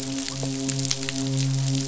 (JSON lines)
{"label": "biophony, midshipman", "recorder": "SoundTrap 500"}